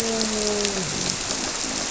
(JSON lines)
{"label": "biophony, grouper", "recorder": "SoundTrap 300"}